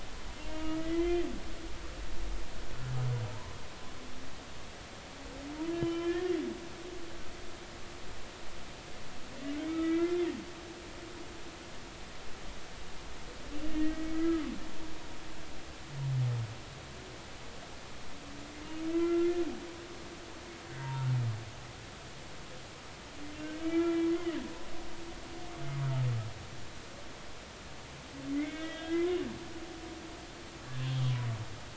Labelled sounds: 0.4	1.2	humpback whale, 0.90 to 3.2 kHz
1.8	2.2	humpback whale, 1.9 to 2.1 kHz
5.6	6.3	humpback whale, 0.96 to 3.1 kHz
9.6	10.2	humpback whale, 1.2 to 2.4 kHz
13.6	14.4	humpback whale, 1.2 to 2.8 kHz
18.9	19.4	humpback whale, 1.3 to 2.1 kHz
20.8	21.1	humpback whale, 0.86 to 0.99 kHz
23.4	24.1	humpback whale, 1.3 to 2.4 kHz
28.3	29.0	humpback whale, 1.5 to 3.7 kHz
30.8	31.1	humpback whale, 3.1 to 3.3 kHz

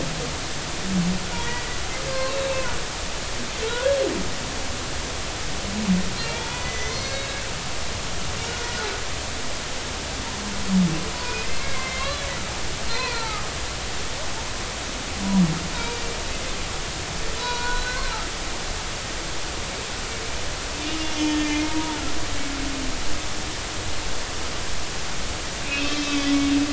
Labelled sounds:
2.1	2.3	humpback whale, 0.99 to 1.6 kHz
6.3	7.4	humpback whale, 0.86 to 4.4 kHz
11.4	12.3	humpback whale, 2.0 to 4.1 kHz
12.8	13.5	humpback whale, 0.80 to 4.5 kHz
14.1	14.4	humpback whale, 1.2 to 1.5 kHz
15.8	16.1	humpback whale, 2.3 to 4.8 kHz
17.4	18.1	humpback whale, 0.93 to 4.4 kHz
21.0	22.0	humpback whale, 0.86 to 6.5 kHz
25.7	26.4	humpback whale, 2.5 to 5.4 kHz

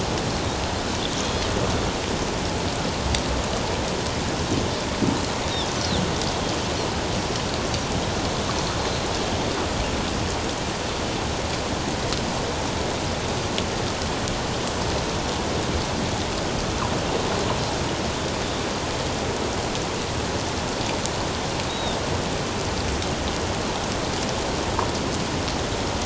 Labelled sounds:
8.8	9.1	Pacific white-sided dolphin, 4.0 to 4.2 kHz
21.7	22.0	Pacific white-sided dolphin, 3.5 to 3.9 kHz

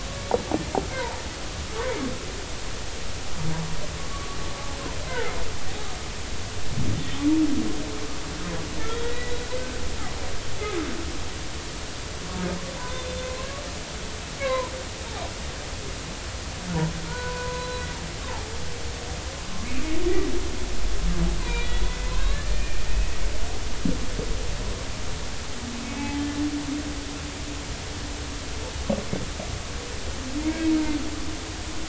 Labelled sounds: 0.9	1.2	humpback whale, 0.83 to 1.1 kHz
4.1	4.4	humpback whale, 1.1 to 1.2 kHz
8.9	9.4	humpback whale, 1.9 to 3.4 kHz
12.8	13.0	humpback whale, 0.86 to 1.1 kHz
14.4	14.7	humpback whale, 0.93 to 2.3 kHz
17.1	17.9	humpback whale, 0.90 to 4.0 kHz
21.4	23.2	humpback whale, 0.90 to 3.9 kHz
25.8	26.2	humpback whale, 0.80 to 2.6 kHz
30.4	30.8	humpback whale, 2.1 to 2.3 kHz

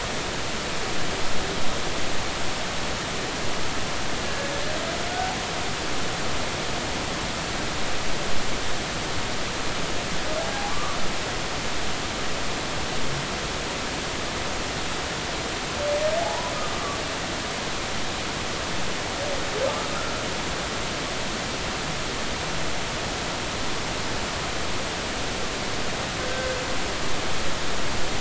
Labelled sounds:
4.2	4.5	humpback whale, 1.6 to 1.7 kHz
10.4	11.0	humpback whale, 0.80 to 1.3 kHz
16.2	16.5	humpback whale, 0.80 to 1.1 kHz
19.9	20.2	humpback whale, 1.2 to 1.4 kHz

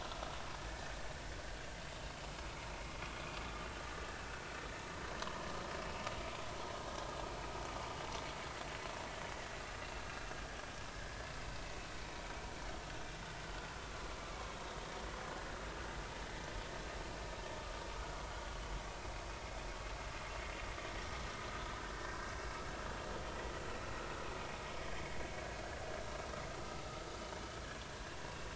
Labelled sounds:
0.7	0.9	vessel noise, 1.7 to 1.9 kHz
12.0	12.2	vessel noise, 2.2 to 2.4 kHz
22.1	22.3	vessel noise, 1.6 to 1.7 kHz

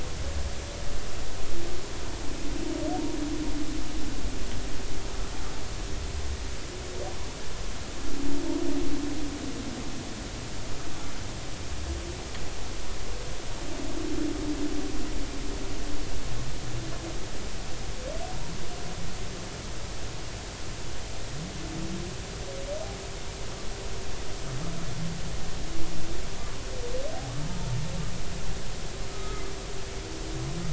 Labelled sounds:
29.1	29.4	humpback whale, 1.2 to 1.3 kHz

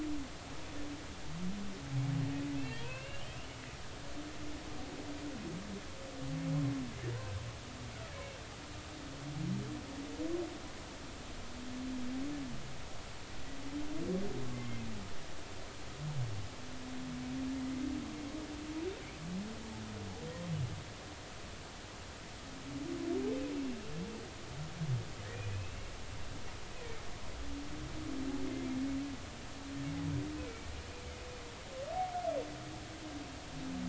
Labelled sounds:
2.8	3.4	humpback whale, 0.90 to 3.3 kHz
14.5	14.8	humpback whale, 2.0 to 2.2 kHz
25.5	25.9	humpback whale, 2.5 to 2.8 kHz

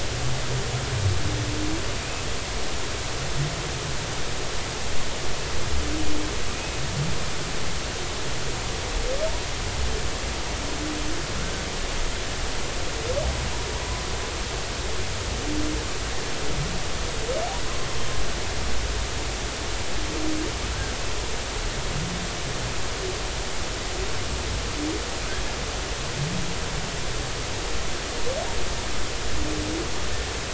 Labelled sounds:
6.5	6.8	humpback whale, 2.4 to 2.6 kHz

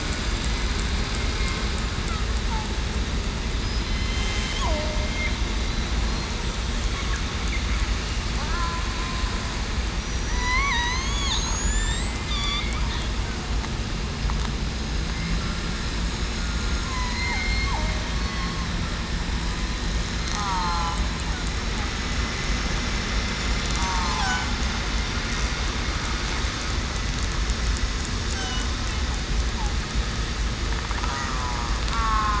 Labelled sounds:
3.8	5.3	killer whale, southern resident, 2.0 to 3.4 kHz
8.4	8.7	killer whale, southern resident, 1.5 to 1.8 kHz
10.3	11.1	killer whale, southern resident, 0.91 to 4.5 kHz
11.5	12.2	killer whale, southern resident, 3.4 to 7.9 kHz
16.8	17.4	killer whale, southern resident, 0.84 to 2.1 kHz
18.1	18.6	killer whale, southern resident, 4.3 to 4.5 kHz
20.2	20.5	killer whale, southern resident, 4.2 to 4.3 kHz
23.8	24.3	killer whale, southern resident, 0.73 to 0.98 kHz
31.1	31.5	killer whale, southern resident, 1.1 to 1.2 kHz
31.9	32.3	killer whale, southern resident, 0.82 to 1.4 kHz

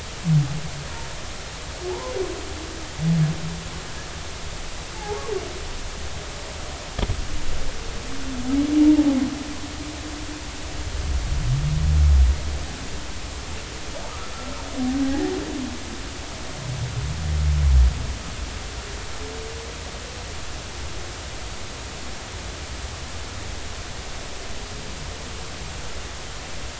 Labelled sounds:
1.9	2.1	humpback whale, 0.80 to 1.1 kHz
5.0	5.2	humpback whale, 0.80 to 0.96 kHz
8.8	9.1	humpback whale, 0.80 to 0.96 kHz
15.0	15.3	humpback whale, 0.80 to 2.0 kHz

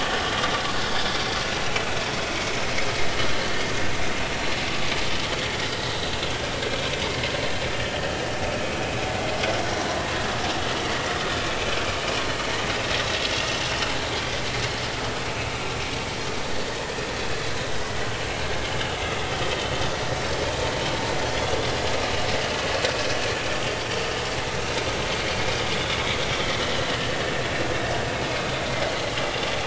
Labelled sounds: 2.3	2.6	vessel noise, 2.1 to 2.3 kHz
3.3	3.6	vessel noise, 4.0 to 4.3 kHz
5.7	6.0	vessel noise, 1.9 to 2.0 kHz
11.4	11.7	vessel noise, 2.2 to 2.5 kHz
16.5	16.7	vessel noise, 4.4 to 4.7 kHz
25.7	26.0	vessel noise, 3.3 to 3.6 kHz
27.0	27.3	vessel noise, 1.6 to 1.9 kHz
28.3	28.5	vessel noise, 2.4 to 2.6 kHz

